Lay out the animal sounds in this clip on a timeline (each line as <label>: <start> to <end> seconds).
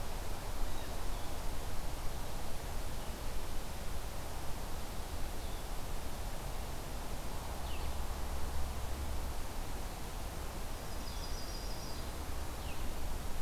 Blue Jay (Cyanocitta cristata): 0.6 to 1.0 seconds
Blue-headed Vireo (Vireo solitarius): 5.3 to 12.9 seconds
Yellow-rumped Warbler (Setophaga coronata): 10.6 to 12.2 seconds